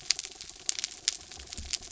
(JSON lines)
{"label": "anthrophony, mechanical", "recorder": "SoundTrap 300"}